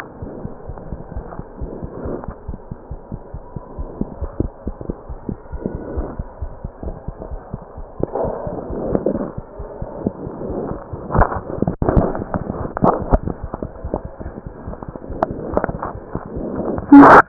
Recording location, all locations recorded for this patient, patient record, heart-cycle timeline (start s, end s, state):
aortic valve (AV)
aortic valve (AV)+mitral valve (MV)
#Age: Child
#Sex: Female
#Height: 70.0 cm
#Weight: 8.1 kg
#Pregnancy status: False
#Murmur: Absent
#Murmur locations: nan
#Most audible location: nan
#Systolic murmur timing: nan
#Systolic murmur shape: nan
#Systolic murmur grading: nan
#Systolic murmur pitch: nan
#Systolic murmur quality: nan
#Diastolic murmur timing: nan
#Diastolic murmur shape: nan
#Diastolic murmur grading: nan
#Diastolic murmur pitch: nan
#Diastolic murmur quality: nan
#Outcome: Normal
#Campaign: 2015 screening campaign
0.00	0.18	diastole
0.18	0.28	S1
0.28	0.43	systole
0.43	0.48	S2
0.48	0.67	diastole
0.67	0.74	S1
0.74	0.91	systole
0.91	0.95	S2
0.95	1.15	diastole
1.15	1.21	S1
1.21	1.38	systole
1.38	1.43	S2
1.43	1.60	diastole
1.60	1.66	S1
1.66	1.81	systole
1.81	1.88	S2
1.88	2.03	diastole
2.03	2.10	S1
2.10	2.27	systole
2.27	2.32	S2
2.32	2.47	diastole
2.47	2.55	S1
2.55	2.70	systole
2.70	2.75	S2
2.75	2.90	diastole
2.90	2.96	S1
2.96	3.11	systole
3.11	3.17	S2
3.17	3.32	diastole
3.32	3.40	S1
3.40	3.54	systole
3.54	3.60	S2
3.60	3.77	diastole
3.77	3.85	S1
3.85	3.99	systole
3.99	4.05	S2
4.05	4.20	diastole
4.20	4.29	S1
4.29	4.42	systole
4.42	4.50	S2
4.50	4.64	diastole
4.64	4.73	S1
4.73	4.87	systole
4.87	4.93	S2
4.93	5.08	diastole
5.08	5.16	S1
5.16	5.30	systole
5.30	5.35	S2
5.35	5.51	diastole
5.51	5.59	S1
5.59	5.73	systole
5.73	5.79	S2
5.79	5.94	diastole
5.94	6.03	S1
6.03	6.17	systole
6.17	6.23	S2
6.23	6.41	diastole
6.41	6.49	S1
6.49	6.62	systole
6.62	6.70	S2
6.70	6.84	diastole
6.84	6.93	S1
6.93	7.06	systole
7.06	7.14	S2